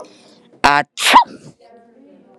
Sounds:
Sneeze